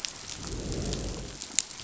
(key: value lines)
label: biophony, growl
recorder: SoundTrap 500